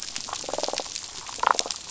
{"label": "biophony, damselfish", "recorder": "SoundTrap 500"}
{"label": "biophony", "recorder": "SoundTrap 500"}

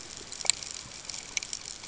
{"label": "ambient", "recorder": "HydroMoth"}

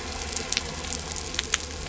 {"label": "anthrophony, boat engine", "recorder": "SoundTrap 300"}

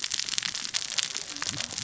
{"label": "biophony, cascading saw", "recorder": "SoundTrap 600 or HydroMoth"}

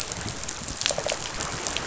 {"label": "biophony, rattle response", "recorder": "SoundTrap 500"}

